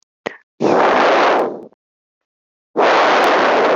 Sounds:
Sigh